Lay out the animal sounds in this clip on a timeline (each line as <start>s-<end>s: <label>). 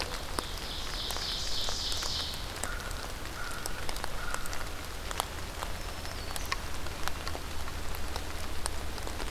0.0s-2.6s: Ovenbird (Seiurus aurocapilla)
2.5s-5.7s: American Crow (Corvus brachyrhynchos)
5.4s-6.7s: Black-throated Green Warbler (Setophaga virens)